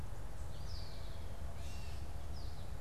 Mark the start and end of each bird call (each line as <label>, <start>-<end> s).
American Goldfinch (Spinus tristis), 0.0-2.8 s
Eastern Wood-Pewee (Contopus virens), 0.3-1.4 s